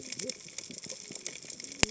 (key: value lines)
label: biophony, cascading saw
recorder: HydroMoth